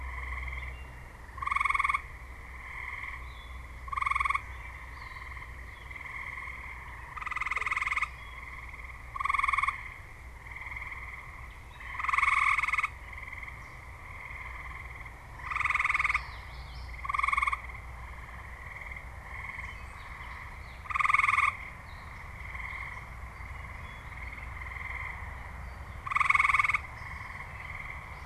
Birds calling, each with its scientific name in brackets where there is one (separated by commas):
Common Yellowthroat (Geothlypis trichas), Gray Catbird (Dumetella carolinensis)